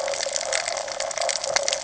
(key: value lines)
label: ambient
recorder: HydroMoth